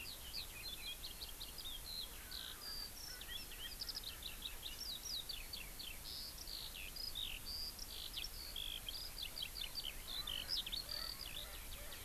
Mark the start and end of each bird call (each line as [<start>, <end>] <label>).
[0.00, 12.04] Eurasian Skylark (Alauda arvensis)
[2.20, 4.40] Erckel's Francolin (Pternistis erckelii)
[10.00, 12.04] Erckel's Francolin (Pternistis erckelii)